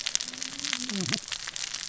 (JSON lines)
{"label": "biophony, cascading saw", "recorder": "SoundTrap 600 or HydroMoth"}